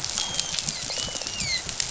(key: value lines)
label: biophony, dolphin
recorder: SoundTrap 500